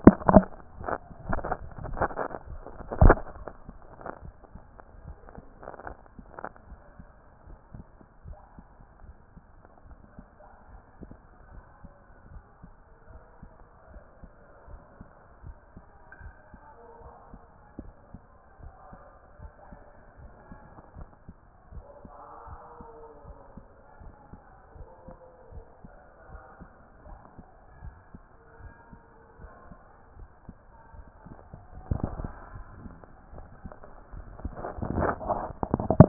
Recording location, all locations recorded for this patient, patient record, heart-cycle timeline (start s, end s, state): mitral valve (MV)
aortic valve (AV)+pulmonary valve (PV)+tricuspid valve (TV)+mitral valve (MV)
#Age: nan
#Sex: Female
#Height: nan
#Weight: nan
#Pregnancy status: True
#Murmur: Absent
#Murmur locations: nan
#Most audible location: nan
#Systolic murmur timing: nan
#Systolic murmur shape: nan
#Systolic murmur grading: nan
#Systolic murmur pitch: nan
#Systolic murmur quality: nan
#Diastolic murmur timing: nan
#Diastolic murmur shape: nan
#Diastolic murmur grading: nan
#Diastolic murmur pitch: nan
#Diastolic murmur quality: nan
#Outcome: Normal
#Campaign: 2014 screening campaign
0.00	7.25	unannotated
7.25	7.46	diastole
7.46	7.58	S1
7.58	7.74	systole
7.74	7.84	S2
7.84	8.26	diastole
8.26	8.38	S1
8.38	8.56	systole
8.56	8.64	S2
8.64	9.04	diastole
9.04	9.14	S1
9.14	9.32	systole
9.32	9.42	S2
9.42	9.86	diastole
9.86	9.98	S1
9.98	10.16	systole
10.16	10.24	S2
10.24	10.70	diastole
10.70	10.82	S1
10.82	11.00	systole
11.00	11.10	S2
11.10	11.50	diastole
11.50	11.62	S1
11.62	11.80	systole
11.80	11.90	S2
11.90	12.30	diastole
12.30	12.42	S1
12.42	12.62	systole
12.62	12.70	S2
12.70	13.10	diastole
13.10	13.22	S1
13.22	13.40	systole
13.40	13.50	S2
13.50	13.90	diastole
13.90	14.04	S1
14.04	14.20	systole
14.20	14.30	S2
14.30	14.68	diastole
14.68	14.80	S1
14.80	14.98	systole
14.98	15.08	S2
15.08	15.44	diastole
15.44	15.56	S1
15.56	15.74	systole
15.74	15.84	S2
15.84	16.22	diastole
16.22	16.34	S1
16.34	16.52	systole
16.52	16.60	S2
16.60	17.02	diastole
17.02	17.14	S1
17.14	17.30	systole
17.30	17.40	S2
17.40	17.78	diastole
17.78	17.92	S1
17.92	18.10	systole
18.10	18.20	S2
18.20	18.62	diastole
18.62	18.74	S1
18.74	18.92	systole
18.92	19.00	S2
19.00	19.40	diastole
19.40	19.52	S1
19.52	19.70	systole
19.70	19.80	S2
19.80	20.20	diastole
20.20	20.32	S1
20.32	20.48	systole
20.48	20.58	S2
20.58	20.96	diastole
20.96	21.08	S1
21.08	21.26	systole
21.26	21.36	S2
21.36	21.72	diastole
21.72	36.08	unannotated